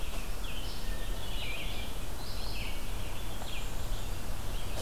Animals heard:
Red-eyed Vireo (Vireo olivaceus), Hermit Thrush (Catharus guttatus)

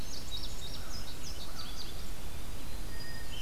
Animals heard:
Eastern Wood-Pewee (Contopus virens), Hermit Thrush (Catharus guttatus), Indigo Bunting (Passerina cyanea)

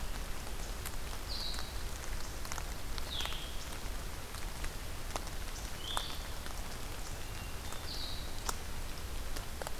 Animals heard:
Blue-headed Vireo (Vireo solitarius), Hermit Thrush (Catharus guttatus)

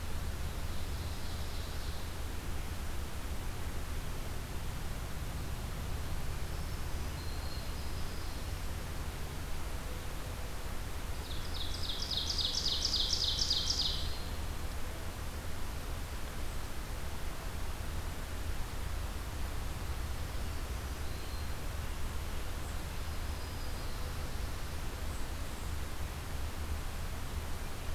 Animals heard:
Black-throated Green Warbler (Setophaga virens), Ovenbird (Seiurus aurocapilla)

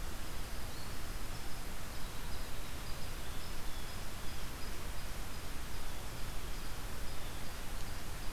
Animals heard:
Blue Jay (Cyanocitta cristata), unknown mammal, Black-throated Green Warbler (Setophaga virens)

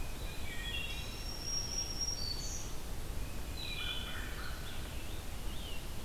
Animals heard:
Wood Thrush (Hylocichla mustelina), Black-throated Green Warbler (Setophaga virens), American Crow (Corvus brachyrhynchos), Eastern Wood-Pewee (Contopus virens), Scarlet Tanager (Piranga olivacea)

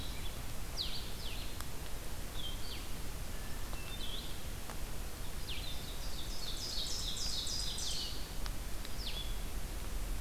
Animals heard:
Ovenbird (Seiurus aurocapilla), Blue-headed Vireo (Vireo solitarius)

